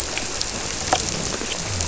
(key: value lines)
label: biophony
recorder: SoundTrap 300